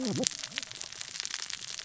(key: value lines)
label: biophony, cascading saw
recorder: SoundTrap 600 or HydroMoth